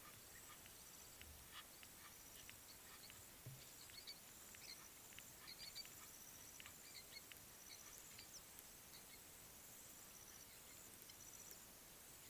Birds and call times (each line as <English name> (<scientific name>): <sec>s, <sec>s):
Egyptian Goose (Alopochen aegyptiaca): 1.5s
Quailfinch (Ortygospiza atricollis): 4.0s, 7.7s